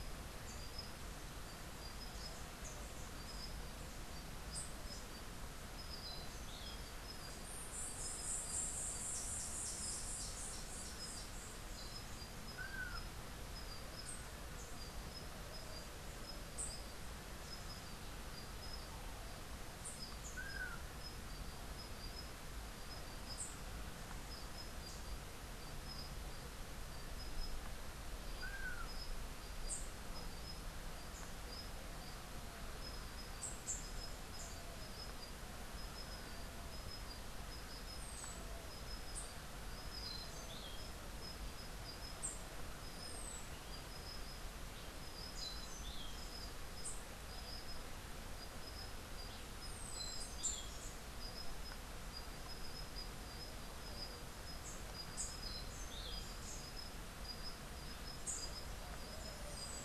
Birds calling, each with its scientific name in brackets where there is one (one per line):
Long-tailed Manakin (Chiroxiphia linearis)
Rufous-capped Warbler (Basileuterus rufifrons)
White-eared Ground-Sparrow (Melozone leucotis)